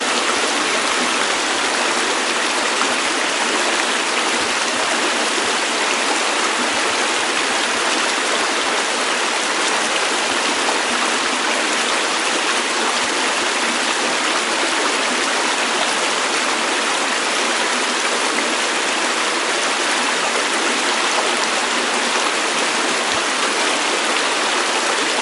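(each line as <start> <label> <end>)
0.0 A fast-moving stream of water flowing continuously. 25.2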